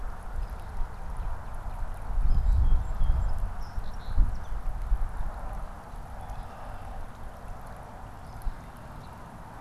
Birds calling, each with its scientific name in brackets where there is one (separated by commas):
Song Sparrow (Melospiza melodia), Northern Cardinal (Cardinalis cardinalis), Red-winged Blackbird (Agelaius phoeniceus), Eastern Phoebe (Sayornis phoebe)